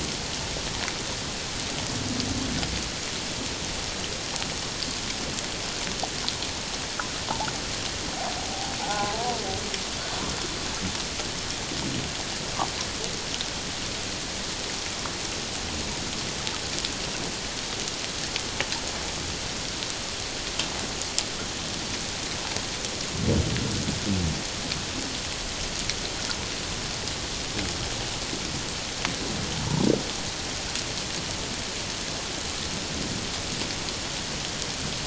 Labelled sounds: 8.4	9.4	humpback whale, 0.78 to 1.5 kHz

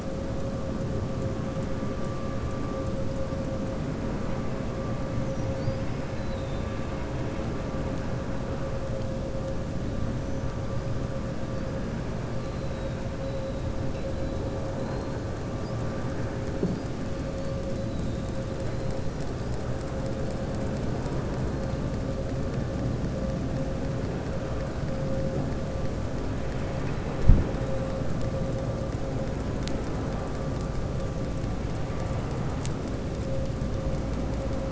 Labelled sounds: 6.1	7.1	killer whale, southern resident, 2.1 to 4.1 kHz
12.4	13.0	killer whale, southern resident, 3.6 to 4.5 kHz

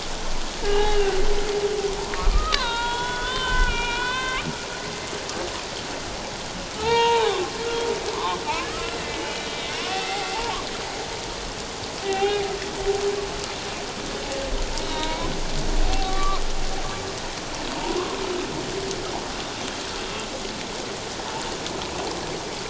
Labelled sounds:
0.6	1.2	humpback whale, 1.4 to 3.0 kHz
2.1	4.5	humpback whale, 0.88 to 4.3 kHz
6.8	7.4	humpback whale, 0.78 to 3.9 kHz
8.1	10.4	humpback whale, 0.78 to 3.0 kHz
12.0	12.5	humpback whale, 0.78 to 3.3 kHz
14.8	16.4	humpback whale, 0.78 to 4.2 kHz
17.7	18.2	humpback whale, 0.78 to 1.2 kHz

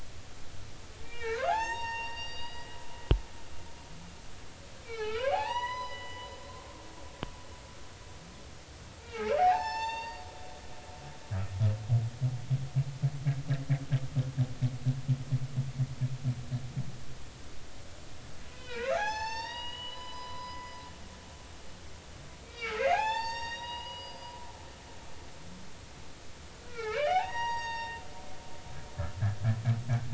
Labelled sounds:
1.0	2.8	humpback whale, 0.80 to 7.5 kHz
4.8	6.3	humpback whale, 0.80 to 6.0 kHz
9.0	10.3	humpback whale, 0.80 to 7.4 kHz
18.5	20.8	humpback whale, 0.80 to 7.2 kHz
22.4	24.3	humpback whale, 0.80 to 7.5 kHz
26.6	28.0	humpback whale, 0.80 to 6.8 kHz

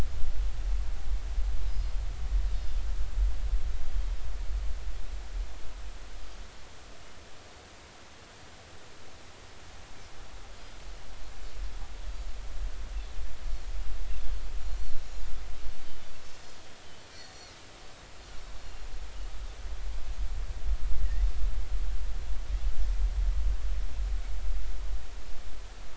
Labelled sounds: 10.5	10.8	Pacific white-sided dolphin, 4.8 to 5.0 kHz
16.3	16.6	Pacific white-sided dolphin, 4.9 to 6.7 kHz

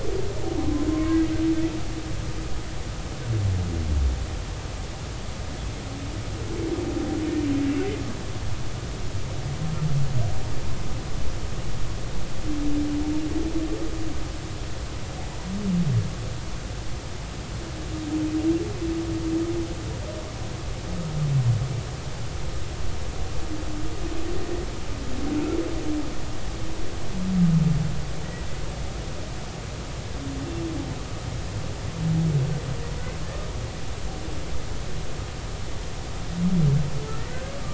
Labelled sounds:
0.9	1.2	humpback whale, 0.99 to 1.2 kHz

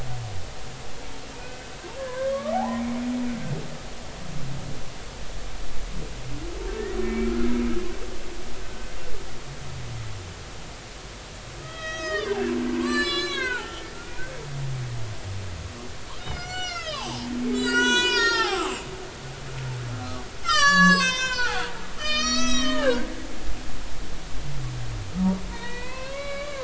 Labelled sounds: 1.4	2.8	humpback whale, 0.80 to 2.6 kHz
6.9	7.3	humpback whale, 2.2 to 2.3 kHz
8.6	8.9	humpback whale, 1.5 to 1.6 kHz
11.6	14.3	humpback whale, 0.80 to 8.0 kHz
16.2	19.6	humpback whale, 0.80 to 8.0 kHz
20.4	21.6	humpback whale, 0.80 to 8.0 kHz
22.0	23.1	humpback whale, 1.2 to 8.0 kHz
25.5	26.6	humpback whale, 0.93 to 4.6 kHz

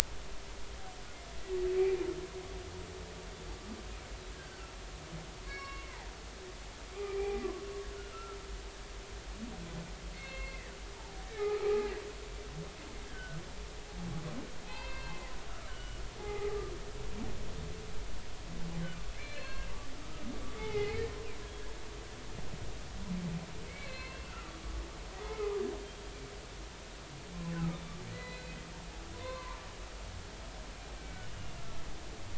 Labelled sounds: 4.3	4.6	humpback whale, 1.5 to 1.7 kHz
5.5	6.0	humpback whale, 1.0 to 4.5 kHz
6.9	8.4	humpback whale, 0.80 to 2.5 kHz
10.1	11.9	humpback whale, 0.80 to 4.4 kHz
13.0	13.4	humpback whale, 1.4 to 1.7 kHz
14.7	16.5	humpback whale, 0.80 to 4.3 kHz
19.2	19.7	humpback whale, 1.5 to 4.4 kHz
20.0	20.3	humpback whale, 1.2 to 1.3 kHz
20.6	21.1	humpback whale, 0.80 to 2.3 kHz
23.7	24.5	humpback whale, 0.99 to 4.4 kHz
25.1	25.6	humpback whale, 0.80 to 1.3 kHz
28.1	28.5	humpback whale, 1.9 to 4.1 kHz
29.1	29.6	humpback whale, 0.90 to 1.2 kHz
31.0	31.6	humpback whale, 2.2 to 2.9 kHz

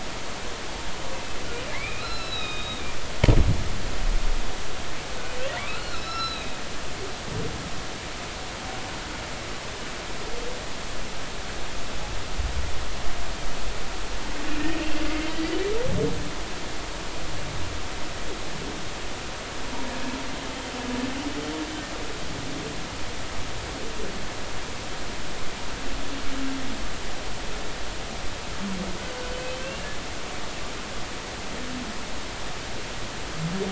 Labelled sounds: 1.7	2.9	humpback whale, 1.2 to 5.5 kHz
5.5	6.6	humpback whale, 1.1 to 5.4 kHz
15.1	15.3	humpback whale, 2.0 to 2.2 kHz
29.6	29.9	humpback whale, 2.6 to 2.9 kHz

